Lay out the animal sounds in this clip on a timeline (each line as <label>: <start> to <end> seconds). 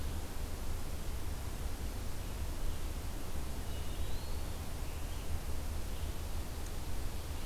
Eastern Wood-Pewee (Contopus virens): 3.4 to 4.6 seconds